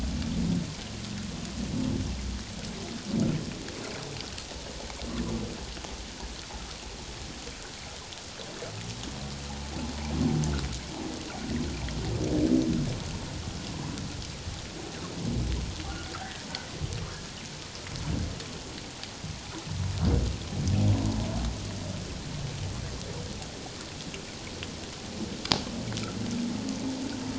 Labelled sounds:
16.1	16.5	humpback whale, 1.5 to 2.0 kHz

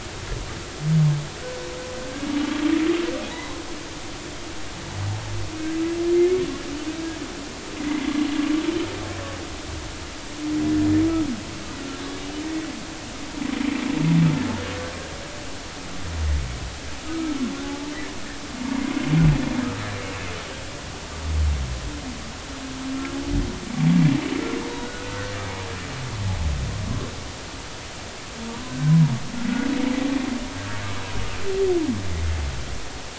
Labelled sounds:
3.3	3.6	humpback whale, 0.83 to 1.1 kHz
7.8	8.1	humpback whale, 1.9 to 2.2 kHz
17.1	17.9	humpback whale, 0.80 to 1.3 kHz
24.7	25.3	humpback whale, 1.3 to 3.9 kHz
28.5	29.1	humpback whale, 0.86 to 1.1 kHz

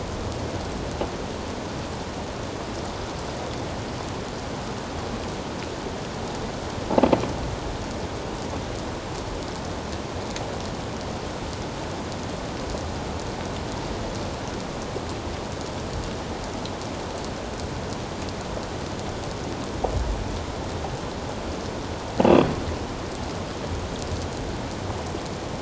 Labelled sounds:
22.2	22.5	croaking sound likely from a nearby submerged object, 2.5 to 3.5 kHz

